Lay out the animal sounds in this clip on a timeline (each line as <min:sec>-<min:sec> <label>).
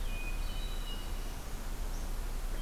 0:00.0-0:01.3 Hermit Thrush (Catharus guttatus)
0:01.0-0:02.2 Northern Parula (Setophaga americana)